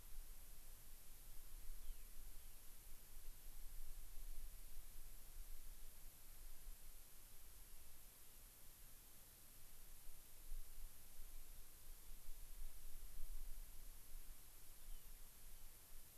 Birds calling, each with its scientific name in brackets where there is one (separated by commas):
Rock Wren (Salpinctes obsoletus)